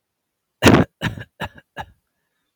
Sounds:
Cough